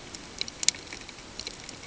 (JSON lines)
{"label": "ambient", "recorder": "HydroMoth"}